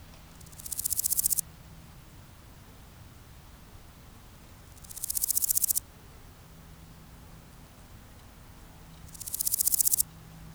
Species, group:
Chrysochraon dispar, Orthoptera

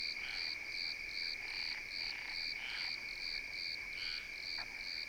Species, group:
Eumodicogryllus bordigalensis, Orthoptera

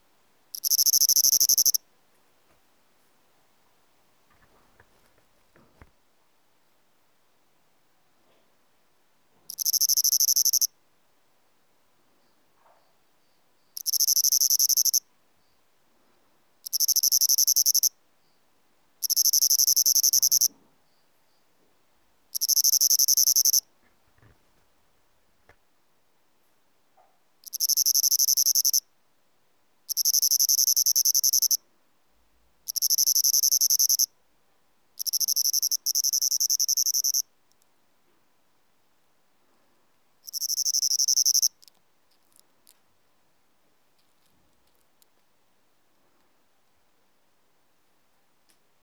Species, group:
Svercus palmetorum, Orthoptera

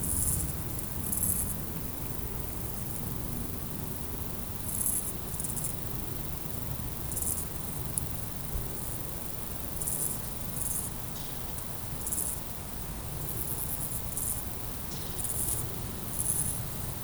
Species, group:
Pseudochorthippus parallelus, Orthoptera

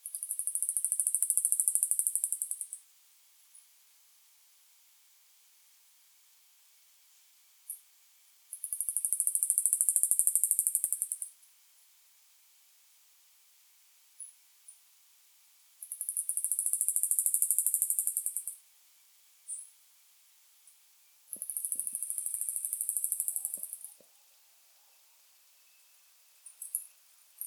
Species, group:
Microcentrum rhombifolium, Orthoptera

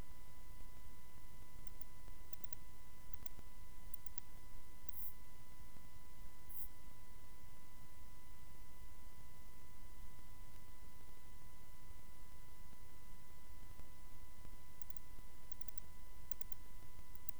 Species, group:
Barbitistes serricauda, Orthoptera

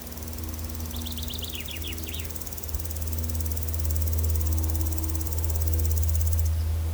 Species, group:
Omocestus rufipes, Orthoptera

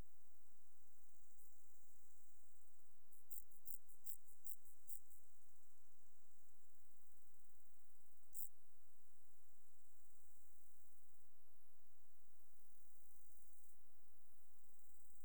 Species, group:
Chorthippus brunneus, Orthoptera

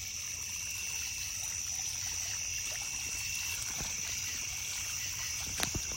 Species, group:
Pterophylla camellifolia, Orthoptera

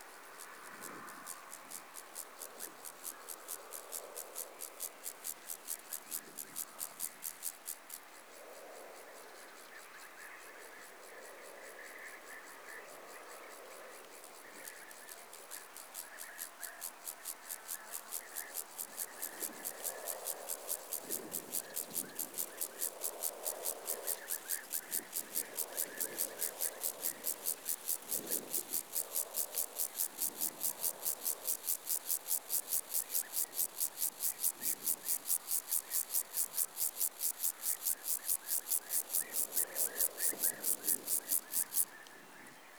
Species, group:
Chorthippus vagans, Orthoptera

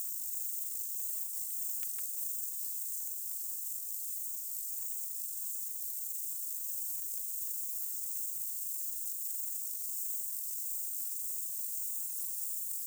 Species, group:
Stauroderus scalaris, Orthoptera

